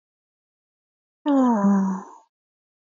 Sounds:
Sigh